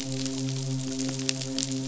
{"label": "biophony, midshipman", "recorder": "SoundTrap 500"}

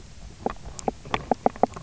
{"label": "biophony, knock croak", "recorder": "SoundTrap 300"}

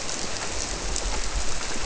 {"label": "biophony", "recorder": "SoundTrap 300"}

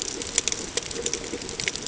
{"label": "ambient", "recorder": "HydroMoth"}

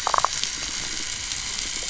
{"label": "biophony, damselfish", "recorder": "SoundTrap 500"}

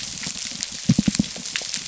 {"label": "biophony", "recorder": "SoundTrap 300"}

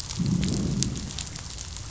{"label": "biophony, growl", "recorder": "SoundTrap 500"}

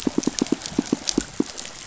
{"label": "biophony, pulse", "recorder": "SoundTrap 500"}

